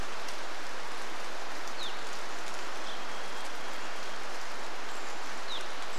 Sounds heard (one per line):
Varied Thrush song
Brown Creeper call
rain
Evening Grosbeak call